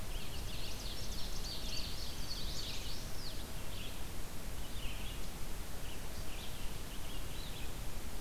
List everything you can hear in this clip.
Red-eyed Vireo, Ovenbird, Indigo Bunting, Chestnut-sided Warbler